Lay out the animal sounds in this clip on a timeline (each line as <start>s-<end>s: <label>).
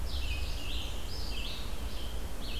0.0s-1.7s: Black-and-white Warbler (Mniotilta varia)
0.0s-2.5s: Red-eyed Vireo (Vireo olivaceus)